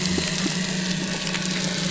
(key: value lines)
label: biophony
recorder: SoundTrap 300